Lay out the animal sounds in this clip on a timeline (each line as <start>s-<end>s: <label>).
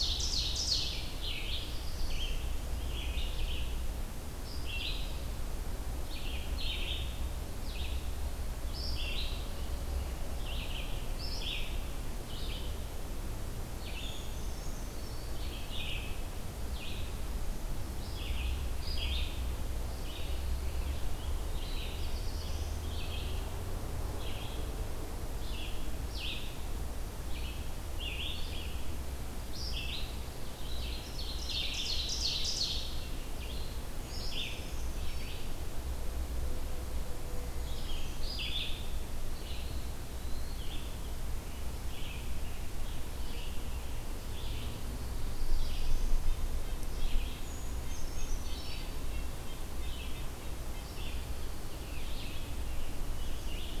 0.0s-1.1s: Ovenbird (Seiurus aurocapilla)
0.0s-24.7s: Red-eyed Vireo (Vireo olivaceus)
1.2s-2.3s: Black-throated Blue Warbler (Setophaga caerulescens)
13.7s-15.4s: Brown Creeper (Certhia americana)
21.5s-22.9s: Black-throated Blue Warbler (Setophaga caerulescens)
25.3s-53.8s: Red-eyed Vireo (Vireo olivaceus)
30.3s-33.1s: Ovenbird (Seiurus aurocapilla)
33.9s-35.7s: Brown Creeper (Certhia americana)
37.5s-38.9s: Brown Creeper (Certhia americana)
40.0s-40.7s: Eastern Wood-Pewee (Contopus virens)
41.2s-44.1s: Scarlet Tanager (Piranga olivacea)
44.9s-46.2s: Black-throated Blue Warbler (Setophaga caerulescens)
45.7s-50.9s: Red-breasted Nuthatch (Sitta canadensis)
47.1s-49.0s: Brown Creeper (Certhia americana)